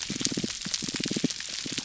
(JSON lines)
{"label": "biophony, pulse", "recorder": "SoundTrap 300"}